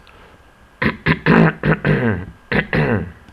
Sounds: Throat clearing